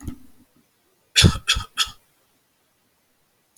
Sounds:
Cough